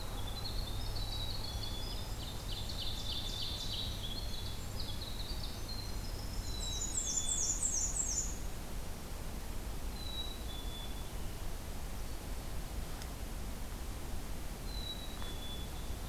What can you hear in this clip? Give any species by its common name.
Winter Wren, Black-capped Chickadee, Ovenbird, Black-and-white Warbler